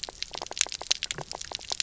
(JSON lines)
{"label": "biophony, knock croak", "recorder": "SoundTrap 300"}